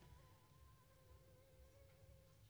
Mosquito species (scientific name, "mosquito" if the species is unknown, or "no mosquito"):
Anopheles funestus s.s.